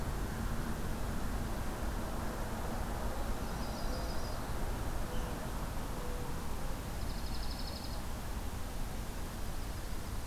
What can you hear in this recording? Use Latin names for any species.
Setophaga coronata, Junco hyemalis